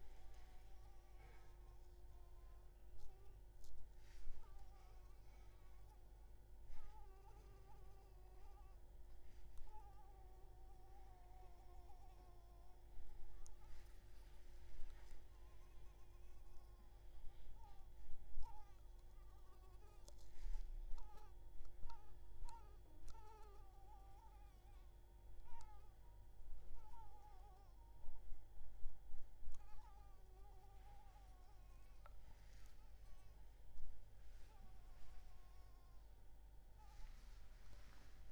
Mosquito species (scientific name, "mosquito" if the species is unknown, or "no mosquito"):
Anopheles arabiensis